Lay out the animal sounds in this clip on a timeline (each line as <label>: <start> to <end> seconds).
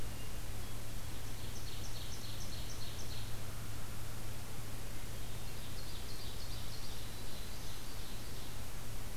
Hermit Thrush (Catharus guttatus): 0.0 to 1.1 seconds
Ovenbird (Seiurus aurocapilla): 1.2 to 3.3 seconds
American Crow (Corvus brachyrhynchos): 3.1 to 4.2 seconds
Hermit Thrush (Catharus guttatus): 5.0 to 5.8 seconds
Ovenbird (Seiurus aurocapilla): 5.6 to 7.1 seconds
Black-throated Green Warbler (Setophaga virens): 6.5 to 7.8 seconds
Ovenbird (Seiurus aurocapilla): 7.4 to 8.6 seconds